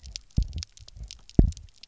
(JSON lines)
{"label": "biophony, double pulse", "recorder": "SoundTrap 300"}